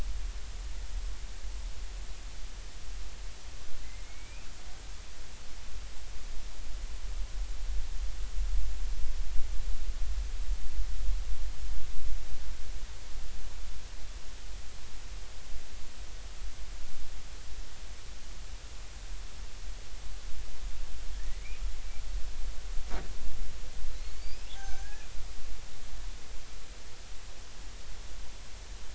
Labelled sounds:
3.8	4.5	killer whale, Bigg's (transient), 1.9 to 2.7 kHz
21.2	21.4	killer whale, Bigg's (transient), 1.6 to 2.1 kHz
24.0	25.1	killer whale, Bigg's (transient), 0.80 to 5.2 kHz

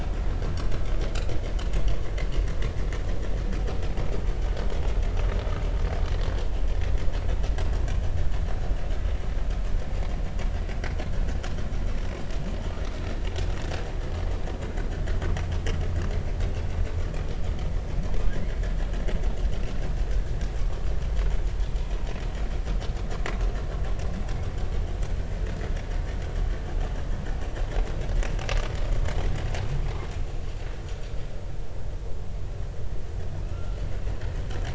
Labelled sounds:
4.3	4.7	humpback whale, 1.4 to 1.6 kHz
19.5	19.8	humpback whale, 1.3 to 1.5 kHz
20.6	20.9	humpback whale, 1.1 to 1.2 kHz
33.5	33.8	humpback whale, 1.2 to 1.5 kHz

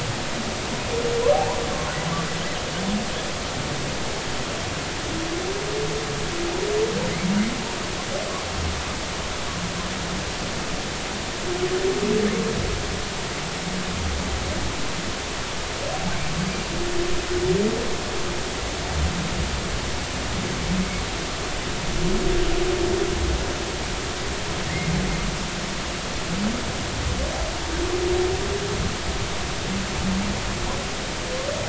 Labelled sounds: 1.3	1.6	humpback whale, 0.80 to 1.1 kHz
24.7	24.9	humpback whale, 1.8 to 2.2 kHz

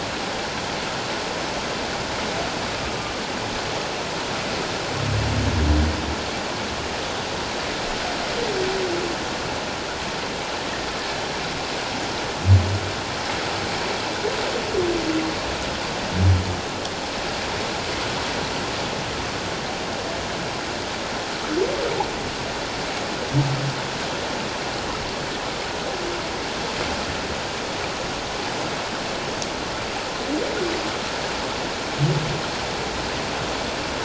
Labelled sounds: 2.8	3.1	humpback whale, 1.2 to 1.3 kHz

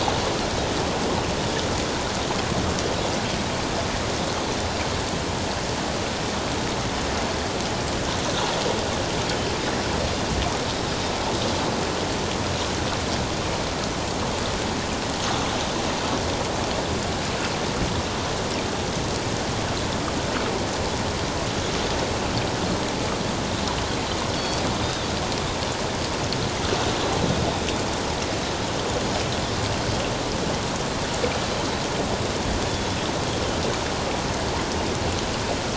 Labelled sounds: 24.8	25.1	Pacific white-sided dolphin, 3.4 to 3.8 kHz
32.7	33.0	Pacific white-sided dolphin, 3.3 to 3.5 kHz

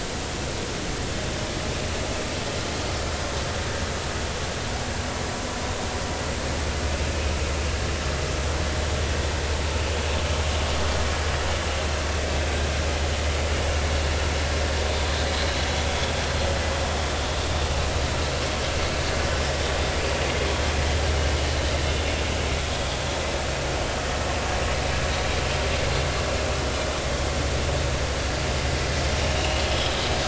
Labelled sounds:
29.4	29.6	vessel noise, 2.8 to 3.0 kHz

